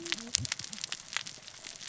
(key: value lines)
label: biophony, cascading saw
recorder: SoundTrap 600 or HydroMoth